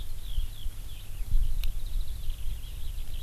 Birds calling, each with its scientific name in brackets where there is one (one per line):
Eurasian Skylark (Alauda arvensis)